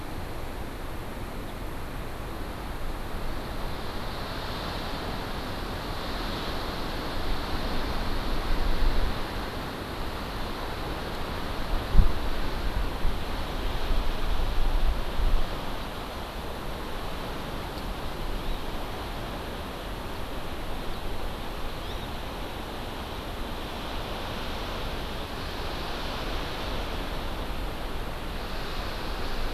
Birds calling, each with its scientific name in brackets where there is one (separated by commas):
Hawaii Amakihi (Chlorodrepanis virens)